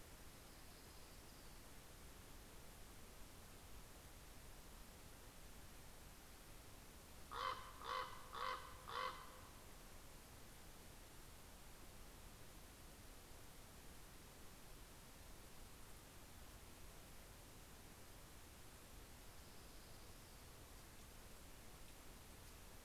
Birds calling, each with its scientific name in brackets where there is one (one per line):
Orange-crowned Warbler (Leiothlypis celata)
Common Raven (Corvus corax)